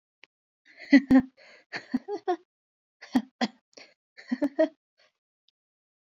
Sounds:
Laughter